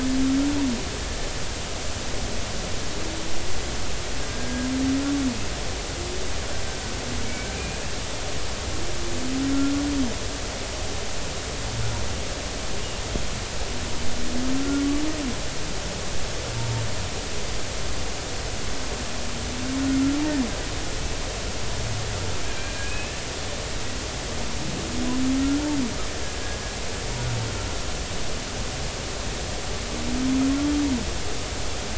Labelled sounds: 4.2	4.7	killer whale, Bigg's (transient), 1.6 to 1.7 kHz
7.2	7.8	killer whale, Bigg's (transient), 2.2 to 2.6 kHz
14.6	14.8	killer whale, Bigg's (transient), 1.3 to 1.4 kHz
22.5	23.1	killer whale, Bigg's (transient), 1.6 to 2.7 kHz

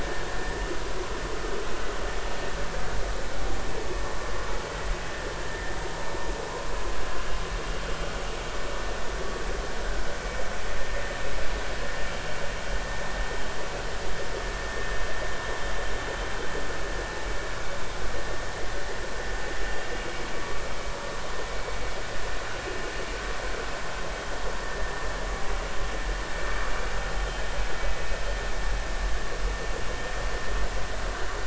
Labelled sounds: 0.0	0.7	vessel noise, 1.6 to 1.9 kHz

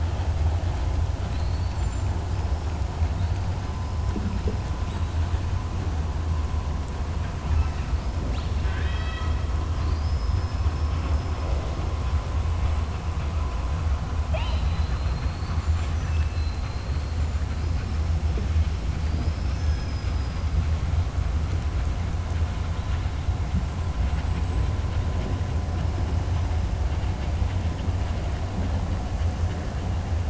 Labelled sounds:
8.2	9.4	killer whale, southern resident, 1.3 to 5.5 kHz
9.7	10.9	killer whale, southern resident, 4.1 to 5.6 kHz
15.5	16.2	killer whale, southern resident, 5.9 to 7.4 kHz
19.0	20.4	killer whale, southern resident, 4.1 to 6.7 kHz

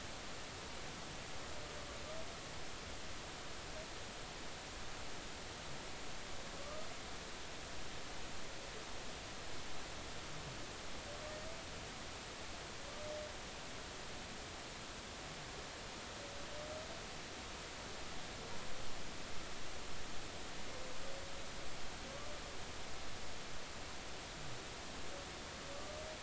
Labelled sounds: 6.6	6.9	humpback whale, 1.1 to 1.3 kHz

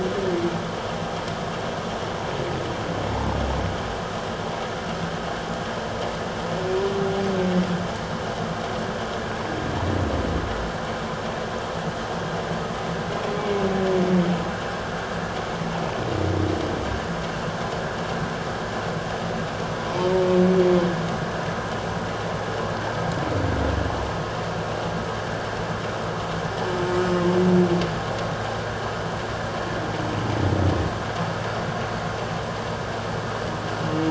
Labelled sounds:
13.3	13.6	humpback whale, 2.2 to 2.3 kHz

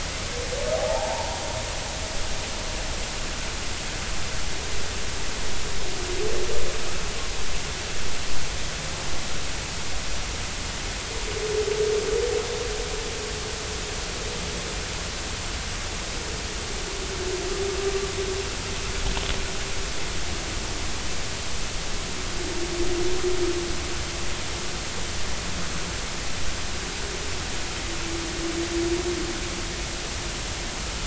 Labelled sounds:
0.8	1.4	humpback whale, 0.80 to 0.99 kHz

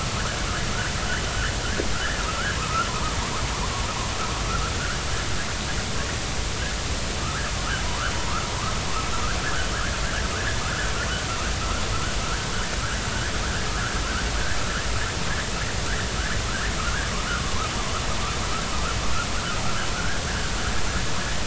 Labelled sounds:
1.9	3.2	vessel noise, 0.86 to 2.0 kHz
4.7	5.0	vessel noise, 1.3 to 1.8 kHz
7.2	8.5	vessel noise, 0.90 to 1.9 kHz
10.6	10.9	vessel noise, 1.2 to 1.8 kHz
16.9	17.1	vessel noise, 1.3 to 1.8 kHz
20.0	20.2	vessel noise, 1.4 to 1.7 kHz

